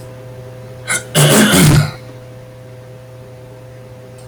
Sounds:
Throat clearing